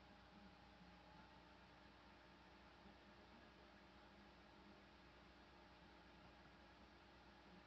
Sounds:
Laughter